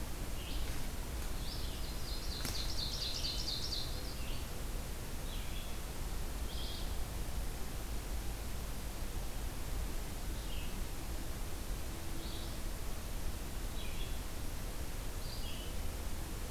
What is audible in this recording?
Red-eyed Vireo, Ovenbird